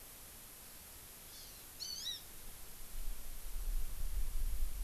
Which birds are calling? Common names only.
Hawaii Amakihi